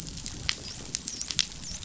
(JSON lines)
{"label": "biophony, dolphin", "recorder": "SoundTrap 500"}